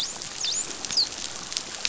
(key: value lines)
label: biophony, dolphin
recorder: SoundTrap 500